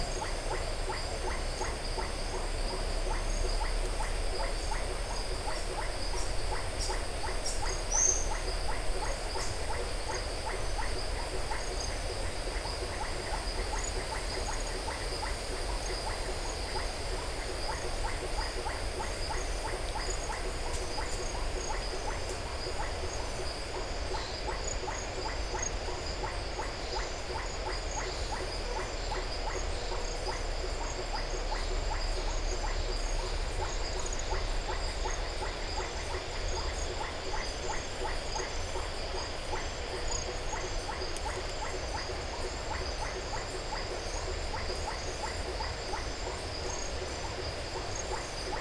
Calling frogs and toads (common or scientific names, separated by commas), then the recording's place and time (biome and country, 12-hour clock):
blacksmith tree frog, Iporanga white-lipped frog
Atlantic Forest, Brazil, 6:30pm